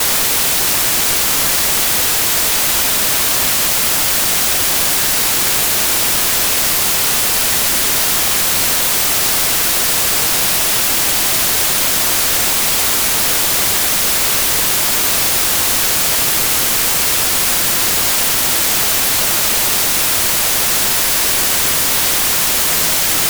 Can a radio make this sound?
yes